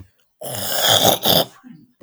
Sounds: Throat clearing